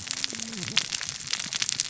{"label": "biophony, cascading saw", "recorder": "SoundTrap 600 or HydroMoth"}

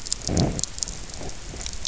{"label": "biophony, low growl", "recorder": "SoundTrap 300"}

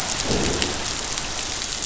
{"label": "biophony, growl", "recorder": "SoundTrap 500"}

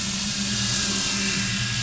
{"label": "anthrophony, boat engine", "recorder": "SoundTrap 500"}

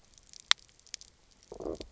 {"label": "biophony, low growl", "recorder": "SoundTrap 300"}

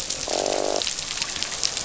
{"label": "biophony, croak", "recorder": "SoundTrap 500"}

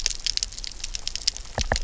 {"label": "biophony, knock", "recorder": "SoundTrap 300"}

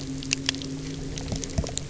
{"label": "anthrophony, boat engine", "recorder": "SoundTrap 300"}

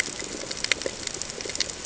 {"label": "ambient", "recorder": "HydroMoth"}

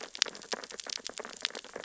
{"label": "biophony, sea urchins (Echinidae)", "recorder": "SoundTrap 600 or HydroMoth"}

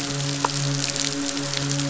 {"label": "biophony, midshipman", "recorder": "SoundTrap 500"}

